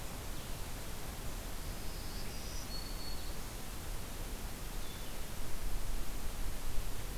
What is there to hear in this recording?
Blue-headed Vireo, Black-throated Green Warbler